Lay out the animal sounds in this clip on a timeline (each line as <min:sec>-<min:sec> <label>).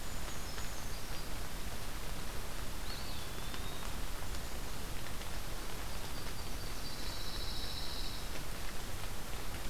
0:00.0-0:01.3 Brown Creeper (Certhia americana)
0:02.7-0:04.0 Eastern Wood-Pewee (Contopus virens)
0:05.9-0:07.3 Yellow-rumped Warbler (Setophaga coronata)
0:06.6-0:08.5 Pine Warbler (Setophaga pinus)